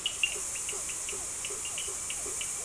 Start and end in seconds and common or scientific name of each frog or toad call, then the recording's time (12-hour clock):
0.0	2.6	blacksmith tree frog
0.0	2.6	Cochran's lime tree frog
0.2	2.6	Physalaemus cuvieri
7:00pm